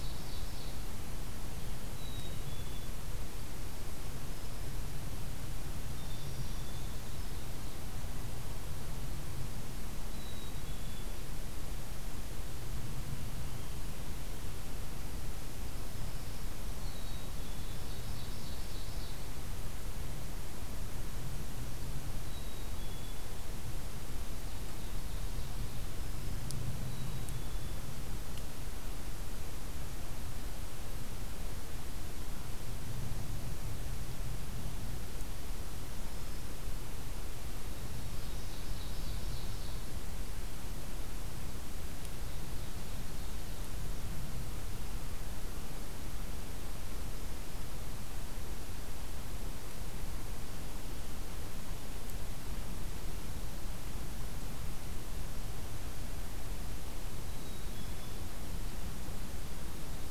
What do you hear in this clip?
Ovenbird, Black-capped Chickadee, Black-throated Green Warbler